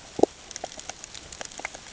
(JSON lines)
{"label": "ambient", "recorder": "HydroMoth"}